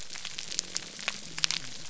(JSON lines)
{"label": "biophony, whup", "recorder": "SoundTrap 300"}